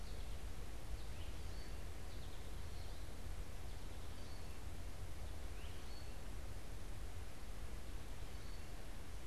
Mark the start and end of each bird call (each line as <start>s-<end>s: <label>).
0.0s-6.0s: Great Crested Flycatcher (Myiarchus crinitus)
0.0s-9.0s: American Goldfinch (Spinus tristis)